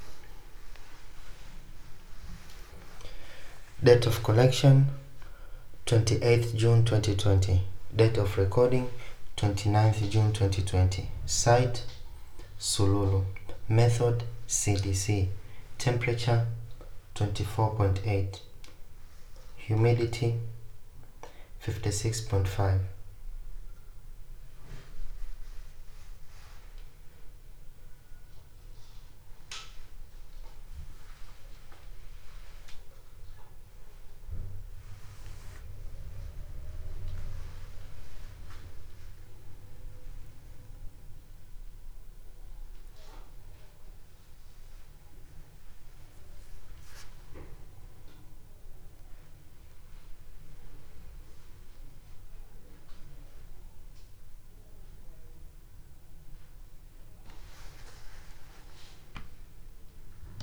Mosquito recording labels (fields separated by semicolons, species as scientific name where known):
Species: no mosquito; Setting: cup